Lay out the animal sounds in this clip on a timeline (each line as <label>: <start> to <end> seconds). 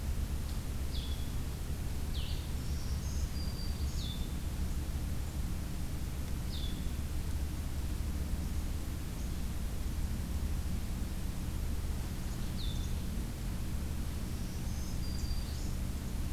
Blue-headed Vireo (Vireo solitarius): 0.0 to 7.0 seconds
Black-throated Green Warbler (Setophaga virens): 2.4 to 4.2 seconds
Blue-headed Vireo (Vireo solitarius): 12.3 to 13.0 seconds
Black-throated Green Warbler (Setophaga virens): 14.0 to 15.9 seconds